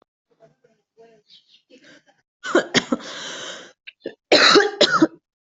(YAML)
expert_labels:
- quality: good
  cough_type: dry
  dyspnea: false
  wheezing: false
  stridor: false
  choking: false
  congestion: false
  nothing: true
  diagnosis: healthy cough
  severity: pseudocough/healthy cough
age: 23
gender: female
respiratory_condition: false
fever_muscle_pain: false
status: healthy